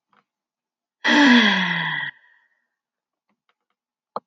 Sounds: Sigh